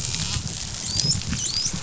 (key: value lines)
label: biophony, dolphin
recorder: SoundTrap 500